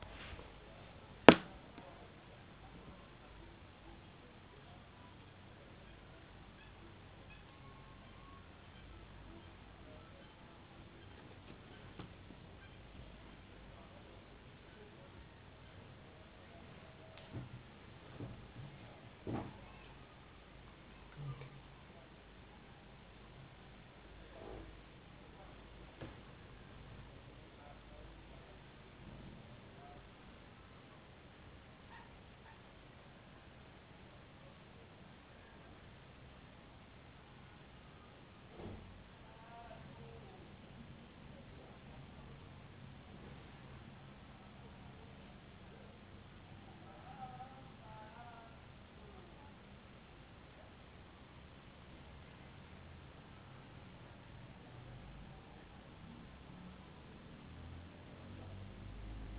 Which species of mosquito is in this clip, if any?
no mosquito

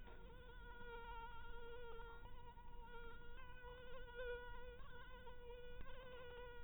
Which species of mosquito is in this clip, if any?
mosquito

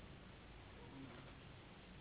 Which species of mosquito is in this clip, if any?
Anopheles gambiae s.s.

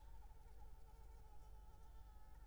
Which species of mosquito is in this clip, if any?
Anopheles gambiae s.l.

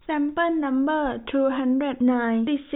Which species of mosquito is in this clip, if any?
no mosquito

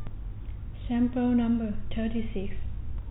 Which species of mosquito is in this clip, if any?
no mosquito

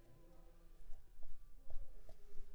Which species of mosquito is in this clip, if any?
Anopheles squamosus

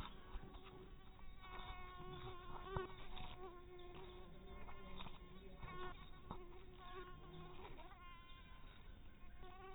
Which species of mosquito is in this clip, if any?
mosquito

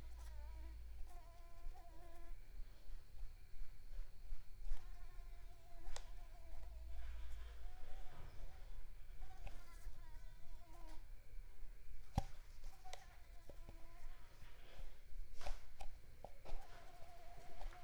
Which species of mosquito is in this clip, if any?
Mansonia africanus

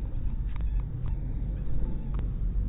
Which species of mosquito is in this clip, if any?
no mosquito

